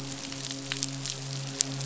{"label": "biophony, midshipman", "recorder": "SoundTrap 500"}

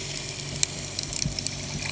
{"label": "anthrophony, boat engine", "recorder": "HydroMoth"}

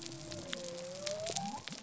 {"label": "biophony", "recorder": "SoundTrap 300"}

